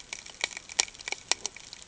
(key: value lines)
label: ambient
recorder: HydroMoth